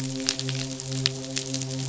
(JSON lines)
{"label": "biophony, midshipman", "recorder": "SoundTrap 500"}